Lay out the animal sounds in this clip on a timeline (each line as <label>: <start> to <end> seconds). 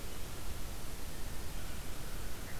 American Crow (Corvus brachyrhynchos): 1.4 to 2.6 seconds